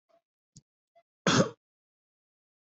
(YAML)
expert_labels:
- quality: ok
  cough_type: dry
  dyspnea: false
  wheezing: false
  stridor: false
  choking: false
  congestion: false
  nothing: true
  diagnosis: lower respiratory tract infection
  severity: mild
age: 18
gender: male
respiratory_condition: false
fever_muscle_pain: false
status: healthy